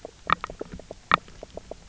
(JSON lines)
{"label": "biophony, knock croak", "recorder": "SoundTrap 300"}